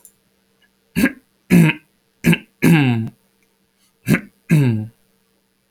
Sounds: Throat clearing